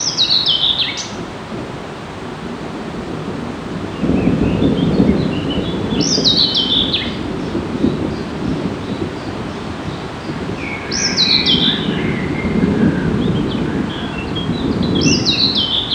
Are there two birds going back and forth with each other?
yes